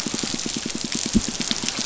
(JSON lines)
{"label": "biophony, pulse", "recorder": "SoundTrap 500"}